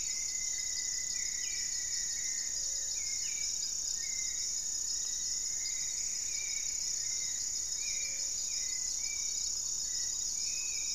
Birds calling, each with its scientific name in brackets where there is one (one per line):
Black-faced Antthrush (Formicarius analis)
Hauxwell's Thrush (Turdus hauxwelli)
Plumbeous Antbird (Myrmelastes hyperythrus)
Black-tailed Trogon (Trogon melanurus)
Gray-fronted Dove (Leptotila rufaxilla)
Rufous-fronted Antthrush (Formicarius rufifrons)